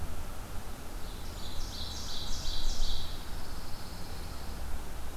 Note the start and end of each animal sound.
[0.91, 3.25] Ovenbird (Seiurus aurocapilla)
[3.07, 4.60] Pine Warbler (Setophaga pinus)

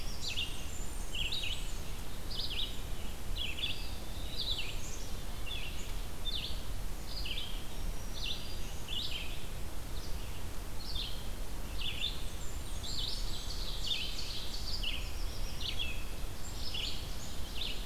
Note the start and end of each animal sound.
[0.00, 0.59] Black-throated Blue Warbler (Setophaga caerulescens)
[0.00, 17.86] Red-eyed Vireo (Vireo olivaceus)
[0.22, 1.94] Blackburnian Warbler (Setophaga fusca)
[3.34, 4.65] Eastern Wood-Pewee (Contopus virens)
[4.54, 5.53] Black-capped Chickadee (Poecile atricapillus)
[7.69, 9.00] Black-throated Green Warbler (Setophaga virens)
[11.92, 13.43] Blackburnian Warbler (Setophaga fusca)
[12.95, 15.07] Ovenbird (Seiurus aurocapilla)
[14.73, 16.04] Black-throated Blue Warbler (Setophaga caerulescens)
[16.29, 17.86] Black-capped Chickadee (Poecile atricapillus)

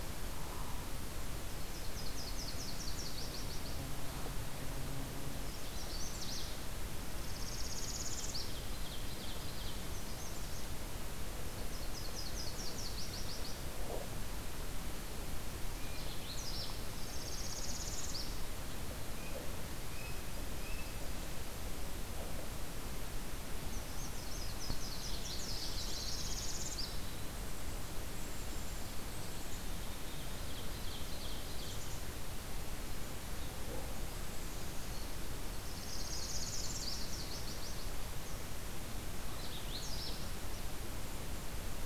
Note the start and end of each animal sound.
[1.23, 3.92] Nashville Warbler (Leiothlypis ruficapilla)
[5.36, 6.70] Magnolia Warbler (Setophaga magnolia)
[7.01, 8.59] Northern Parula (Setophaga americana)
[8.00, 9.95] Ovenbird (Seiurus aurocapilla)
[9.68, 10.95] Magnolia Warbler (Setophaga magnolia)
[11.19, 13.74] Nashville Warbler (Leiothlypis ruficapilla)
[15.73, 16.95] Magnolia Warbler (Setophaga magnolia)
[16.90, 18.36] Northern Parula (Setophaga americana)
[18.78, 21.25] American Robin (Turdus migratorius)
[23.67, 26.51] Nashville Warbler (Leiothlypis ruficapilla)
[25.39, 27.13] Northern Parula (Setophaga americana)
[27.21, 29.77] Black-capped Chickadee (Poecile atricapillus)
[28.96, 31.96] Ovenbird (Seiurus aurocapilla)
[31.58, 32.03] Black-capped Chickadee (Poecile atricapillus)
[33.98, 35.08] Black-capped Chickadee (Poecile atricapillus)
[35.53, 37.05] Northern Parula (Setophaga americana)
[35.87, 38.07] Nashville Warbler (Leiothlypis ruficapilla)
[38.99, 40.46] Magnolia Warbler (Setophaga magnolia)

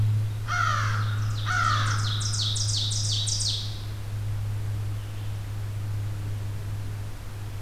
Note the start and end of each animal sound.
[0.13, 2.35] American Crow (Corvus brachyrhynchos)
[1.20, 4.22] Ovenbird (Seiurus aurocapilla)

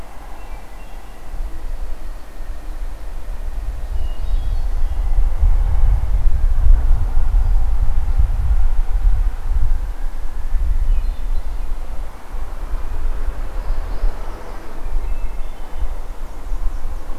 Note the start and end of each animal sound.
[0.00, 1.15] Hermit Thrush (Catharus guttatus)
[1.05, 2.37] Red-winged Blackbird (Agelaius phoeniceus)
[3.77, 4.95] Northern Parula (Setophaga americana)
[3.97, 5.06] Hermit Thrush (Catharus guttatus)
[7.32, 7.77] Hermit Thrush (Catharus guttatus)
[10.69, 11.70] Hermit Thrush (Catharus guttatus)
[13.45, 14.83] Northern Parula (Setophaga americana)
[14.78, 16.24] Hermit Thrush (Catharus guttatus)
[15.92, 17.18] Black-and-white Warbler (Mniotilta varia)

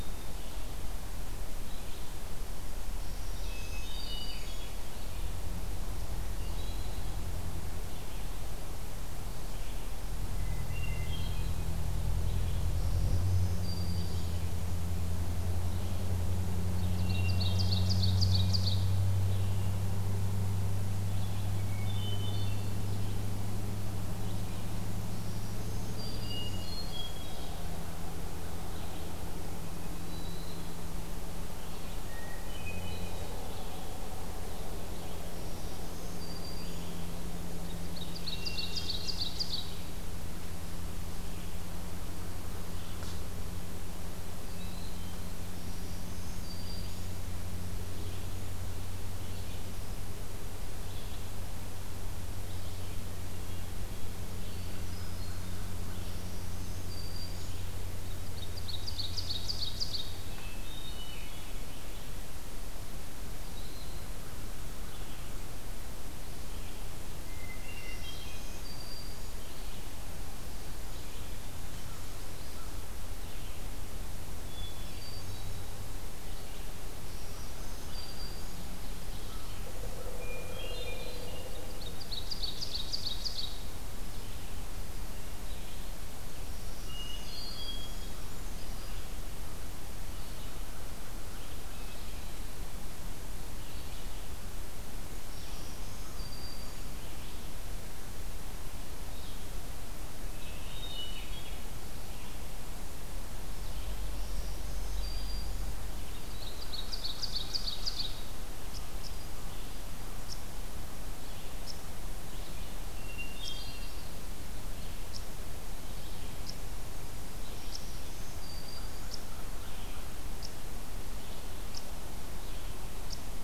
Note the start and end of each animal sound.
[0.00, 43.30] Red-eyed Vireo (Vireo olivaceus)
[2.88, 4.76] Black-throated Green Warbler (Setophaga virens)
[3.33, 4.57] Hermit Thrush (Catharus guttatus)
[10.28, 11.70] Hermit Thrush (Catharus guttatus)
[12.72, 14.43] Black-throated Green Warbler (Setophaga virens)
[16.71, 18.95] Ovenbird (Seiurus aurocapilla)
[16.94, 17.84] Hermit Thrush (Catharus guttatus)
[21.50, 22.78] Hermit Thrush (Catharus guttatus)
[24.97, 26.64] Black-throated Green Warbler (Setophaga virens)
[26.50, 27.53] Hermit Thrush (Catharus guttatus)
[30.00, 30.85] Hermit Thrush (Catharus guttatus)
[31.96, 33.20] Hermit Thrush (Catharus guttatus)
[35.24, 37.10] Black-throated Green Warbler (Setophaga virens)
[37.65, 40.04] Ovenbird (Seiurus aurocapilla)
[37.96, 39.97] Hermit Thrush (Catharus guttatus)
[44.25, 102.54] Red-eyed Vireo (Vireo olivaceus)
[45.48, 47.29] Black-throated Green Warbler (Setophaga virens)
[53.15, 54.16] Hermit Thrush (Catharus guttatus)
[54.45, 55.65] Hermit Thrush (Catharus guttatus)
[55.89, 57.68] Black-throated Green Warbler (Setophaga virens)
[58.04, 60.29] Ovenbird (Seiurus aurocapilla)
[60.27, 61.55] Hermit Thrush (Catharus guttatus)
[67.22, 68.39] Hermit Thrush (Catharus guttatus)
[67.71, 69.47] Black-throated Green Warbler (Setophaga virens)
[74.34, 75.74] Hermit Thrush (Catharus guttatus)
[77.08, 78.77] Black-throated Green Warbler (Setophaga virens)
[80.09, 81.60] Hermit Thrush (Catharus guttatus)
[81.65, 83.76] Ovenbird (Seiurus aurocapilla)
[86.37, 88.08] Black-throated Green Warbler (Setophaga virens)
[86.78, 88.02] Hermit Thrush (Catharus guttatus)
[88.18, 89.11] Brown Creeper (Certhia americana)
[91.51, 92.45] Hermit Thrush (Catharus guttatus)
[95.19, 97.01] Black-throated Green Warbler (Setophaga virens)
[100.34, 101.62] Hermit Thrush (Catharus guttatus)
[103.33, 123.44] Red-eyed Vireo (Vireo olivaceus)
[104.09, 105.77] Black-throated Green Warbler (Setophaga virens)
[106.16, 108.47] Ovenbird (Seiurus aurocapilla)
[108.67, 123.44] unknown mammal
[112.82, 114.10] Hermit Thrush (Catharus guttatus)
[117.44, 119.19] Black-throated Green Warbler (Setophaga virens)

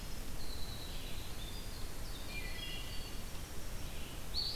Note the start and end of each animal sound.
[0.00, 4.06] Winter Wren (Troglodytes hiemalis)
[0.64, 4.56] Red-eyed Vireo (Vireo olivaceus)
[2.19, 3.20] Wood Thrush (Hylocichla mustelina)

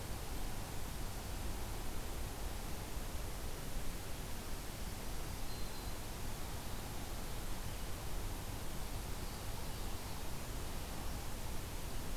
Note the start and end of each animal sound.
[4.60, 6.29] Black-throated Green Warbler (Setophaga virens)

